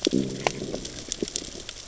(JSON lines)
{"label": "biophony, growl", "recorder": "SoundTrap 600 or HydroMoth"}